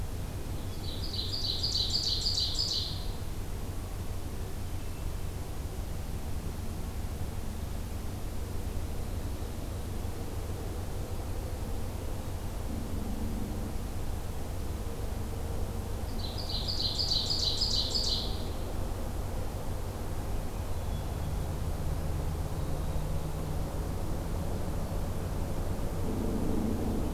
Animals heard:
Hermit Thrush (Catharus guttatus), Ovenbird (Seiurus aurocapilla)

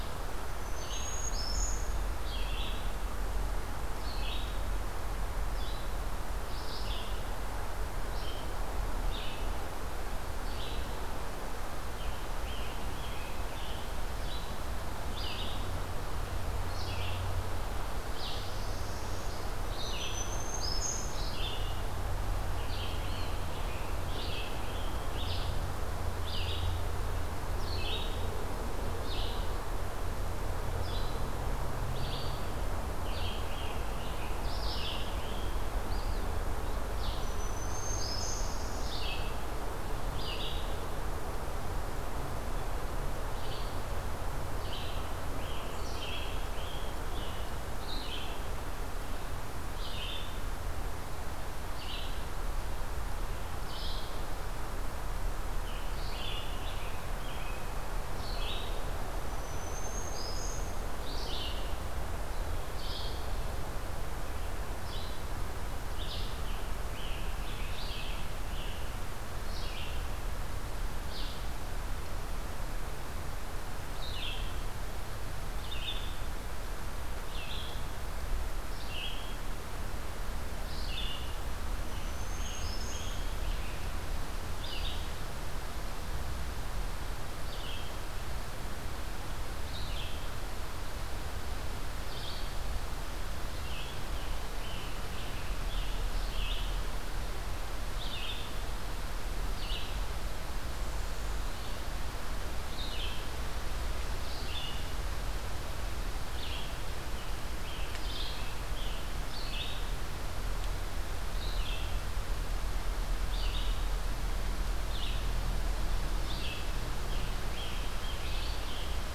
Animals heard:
Black-throated Green Warbler (Setophaga virens), Red-eyed Vireo (Vireo olivaceus), Northern Parula (Setophaga americana), Eastern Wood-Pewee (Contopus virens), Scarlet Tanager (Piranga olivacea)

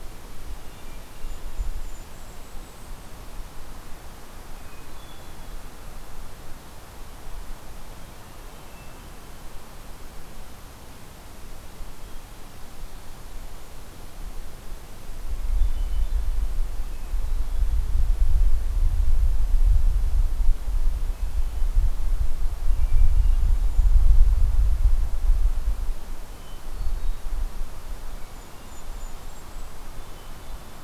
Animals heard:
Hermit Thrush (Catharus guttatus), Golden-crowned Kinglet (Regulus satrapa)

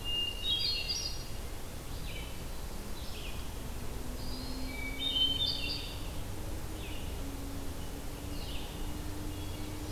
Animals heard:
Hermit Thrush (Catharus guttatus), Red-eyed Vireo (Vireo olivaceus), Eastern Wood-Pewee (Contopus virens)

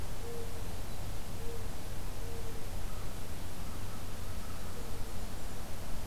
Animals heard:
Golden-crowned Kinglet (Regulus satrapa), Mourning Dove (Zenaida macroura)

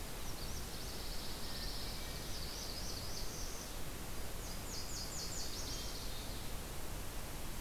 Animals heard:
Northern Parula (Setophaga americana), Magnolia Warbler (Setophaga magnolia), Pine Warbler (Setophaga pinus), Nashville Warbler (Leiothlypis ruficapilla)

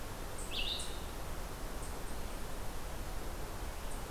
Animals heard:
Red-eyed Vireo (Vireo olivaceus)

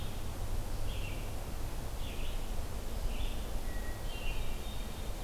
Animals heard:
Hermit Thrush (Catharus guttatus), Red-eyed Vireo (Vireo olivaceus)

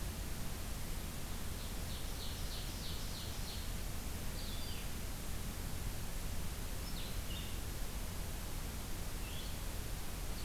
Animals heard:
Black-throated Green Warbler (Setophaga virens), Blue-headed Vireo (Vireo solitarius), Ovenbird (Seiurus aurocapilla)

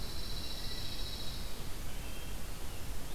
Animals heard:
Pine Warbler (Setophaga pinus), Wood Thrush (Hylocichla mustelina)

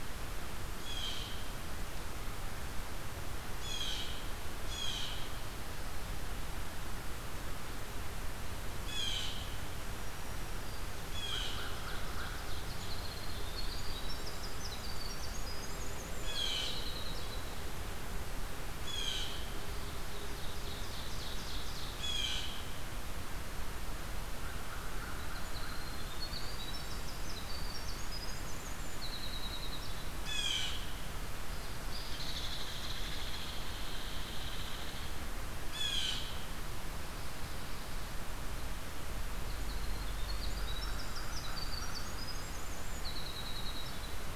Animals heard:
Winter Wren (Troglodytes hiemalis), Blue Jay (Cyanocitta cristata), American Crow (Corvus brachyrhynchos), Ovenbird (Seiurus aurocapilla), Hairy Woodpecker (Dryobates villosus)

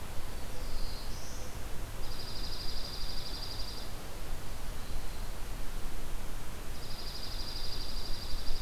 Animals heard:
Dark-eyed Junco (Junco hyemalis), Black-throated Blue Warbler (Setophaga caerulescens)

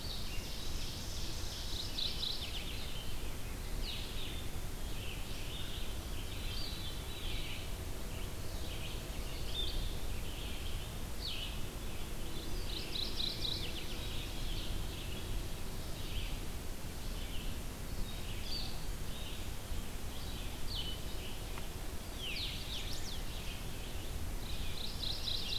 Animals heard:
Mourning Warbler (Geothlypis philadelphia), Veery (Catharus fuscescens), Ovenbird (Seiurus aurocapilla), Chestnut-sided Warbler (Setophaga pensylvanica), Red-eyed Vireo (Vireo olivaceus), Blue-headed Vireo (Vireo solitarius)

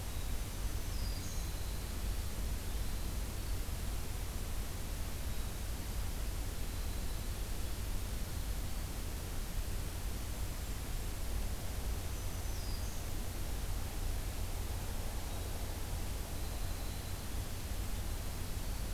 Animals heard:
Black-throated Green Warbler (Setophaga virens), Winter Wren (Troglodytes hiemalis)

